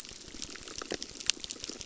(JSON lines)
{"label": "biophony, crackle", "recorder": "SoundTrap 600"}